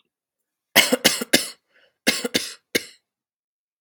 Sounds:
Cough